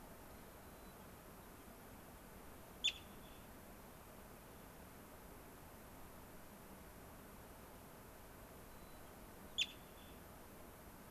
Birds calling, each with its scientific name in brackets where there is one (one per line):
White-crowned Sparrow (Zonotrichia leucophrys)